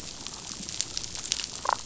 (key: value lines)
label: biophony, damselfish
recorder: SoundTrap 500